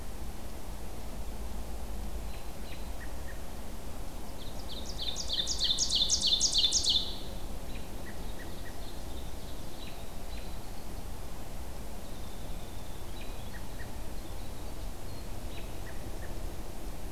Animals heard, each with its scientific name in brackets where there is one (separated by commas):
Ovenbird (Seiurus aurocapilla), Winter Wren (Troglodytes hiemalis), American Robin (Turdus migratorius)